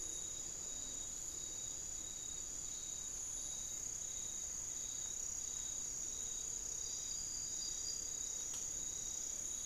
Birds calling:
unidentified bird

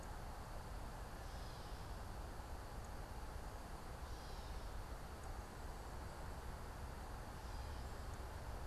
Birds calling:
Gray Catbird (Dumetella carolinensis)

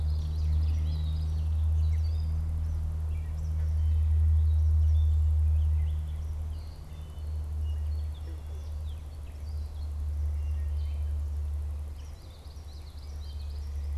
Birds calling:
Gray Catbird (Dumetella carolinensis), Wood Thrush (Hylocichla mustelina), Common Yellowthroat (Geothlypis trichas)

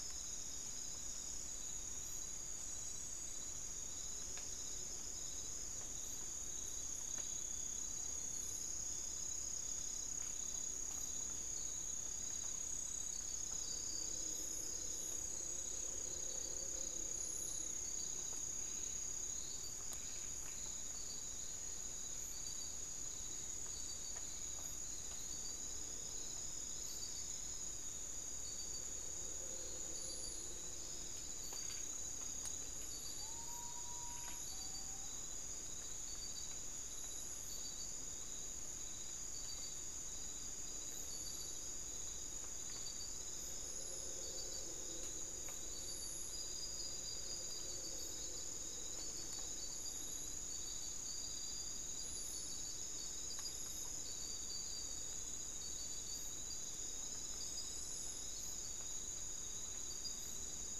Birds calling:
Common Potoo (Nyctibius griseus)

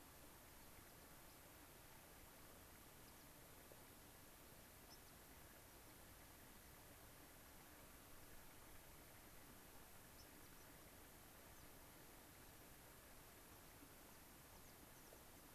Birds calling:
American Pipit (Anthus rubescens), White-crowned Sparrow (Zonotrichia leucophrys)

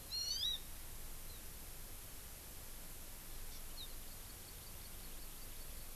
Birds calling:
Hawaii Amakihi (Chlorodrepanis virens)

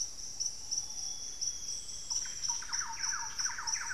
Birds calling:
Thrush-like Wren (Campylorhynchus turdinus), Ruddy Pigeon (Patagioenas subvinacea), Amazonian Grosbeak (Cyanoloxia rothschildii)

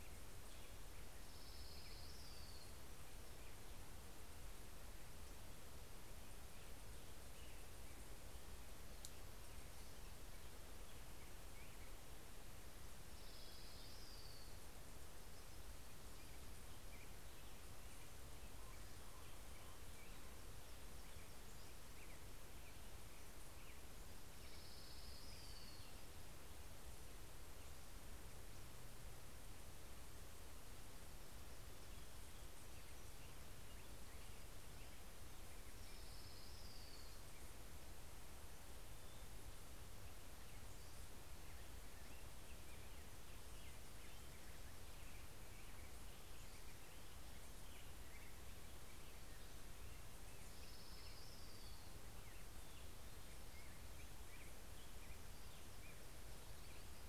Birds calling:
Common Raven (Corvus corax), Orange-crowned Warbler (Leiothlypis celata), Pacific-slope Flycatcher (Empidonax difficilis)

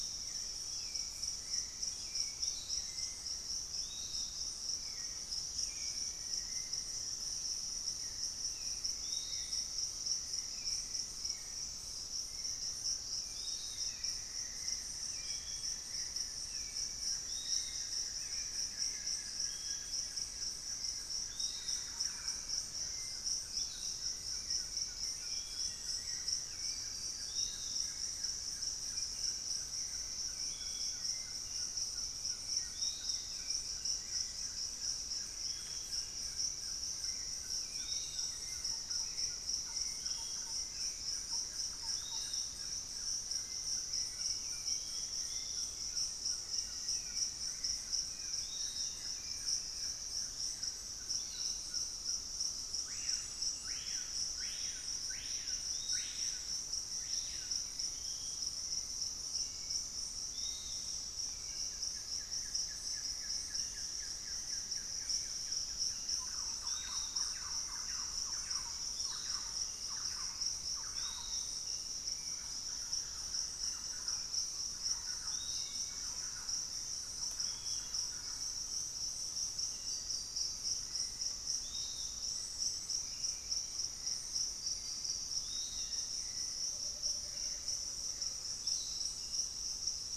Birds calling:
Gray Antwren (Myrmotherula menetriesii), Buff-throated Woodcreeper (Xiphorhynchus guttatus), Amazonian Motmot (Momotus momota), Piratic Flycatcher (Legatus leucophaius), unidentified bird, Pygmy Antwren (Myrmotherula brachyura), Black-faced Antthrush (Formicarius analis), Screaming Piha (Lipaugus vociferans), Hauxwell's Thrush (Turdus hauxwelli), Thrush-like Wren (Campylorhynchus turdinus)

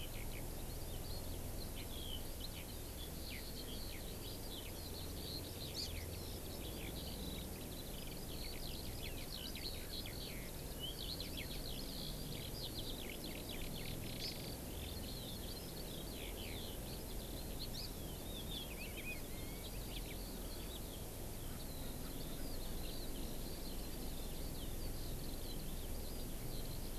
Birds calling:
Hawaii Amakihi (Chlorodrepanis virens), Eurasian Skylark (Alauda arvensis)

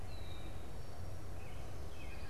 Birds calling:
Red-winged Blackbird (Agelaius phoeniceus), Wood Thrush (Hylocichla mustelina), American Robin (Turdus migratorius)

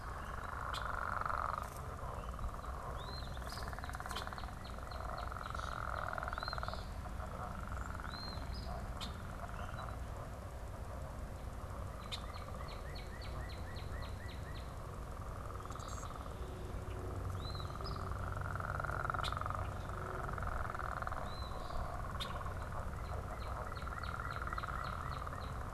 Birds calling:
Northern Cardinal (Cardinalis cardinalis), Eastern Phoebe (Sayornis phoebe), unidentified bird

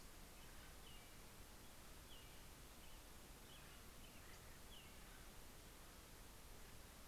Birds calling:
American Robin (Turdus migratorius), Acorn Woodpecker (Melanerpes formicivorus)

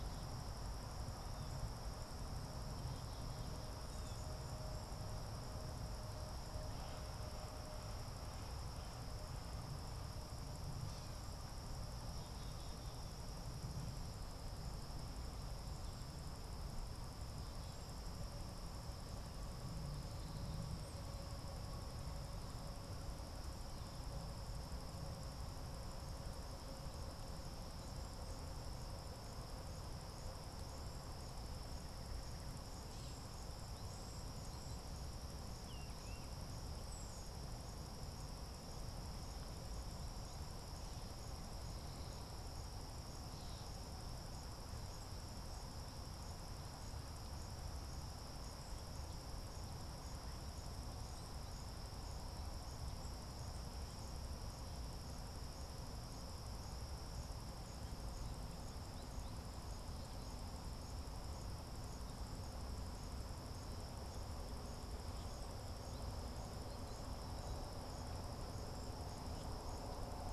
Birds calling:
Tufted Titmouse (Baeolophus bicolor), Cedar Waxwing (Bombycilla cedrorum)

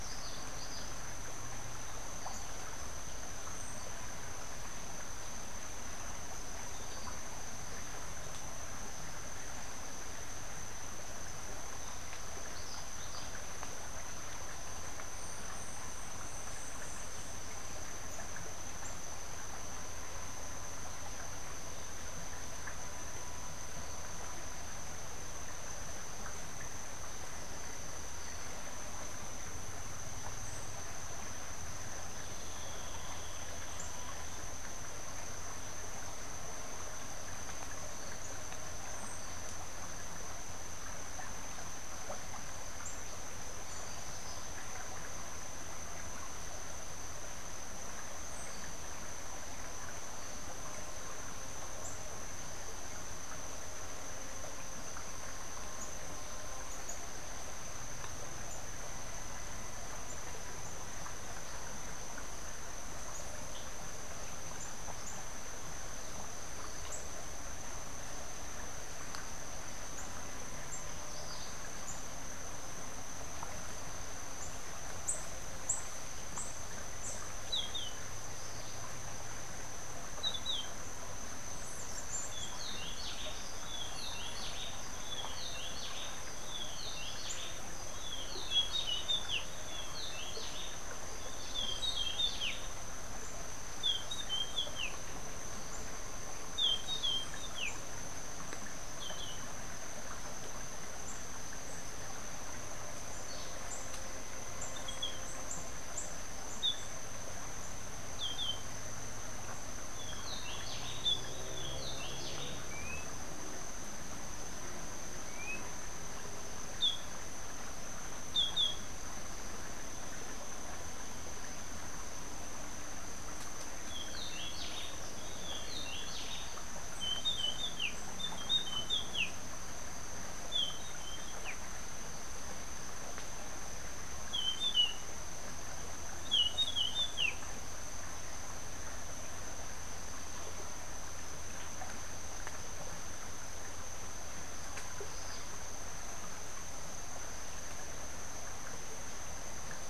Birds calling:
Rufous-breasted Wren (Pheugopedius rutilus), Orange-billed Nightingale-Thrush (Catharus aurantiirostris), Yellow-throated Euphonia (Euphonia hirundinacea), Yellow Warbler (Setophaga petechia)

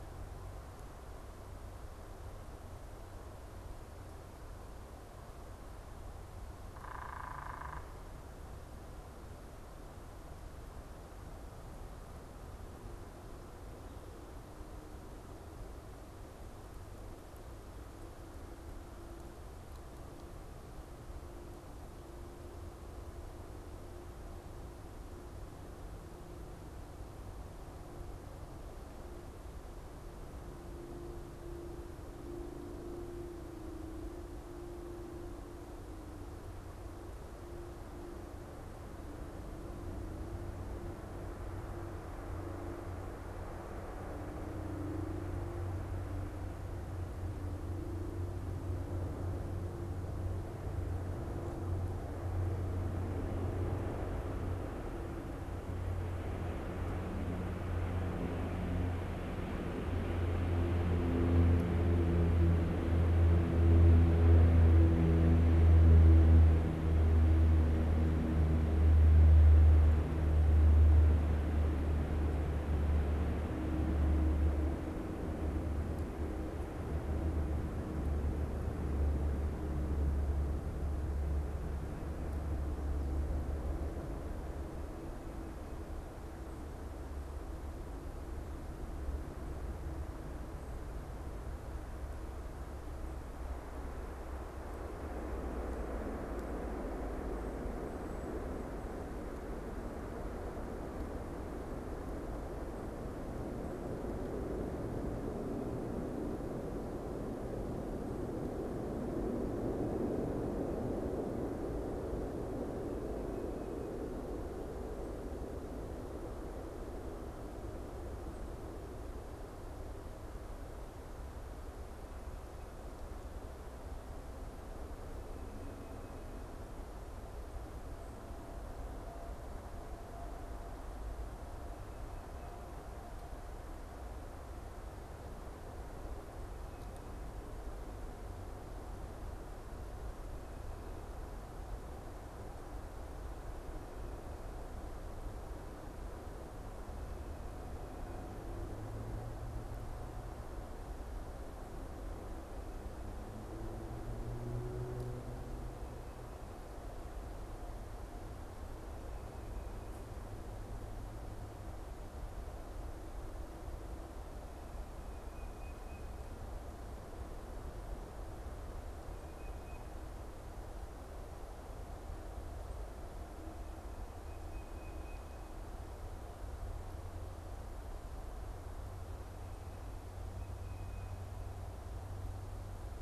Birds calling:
Tufted Titmouse (Baeolophus bicolor), unidentified bird

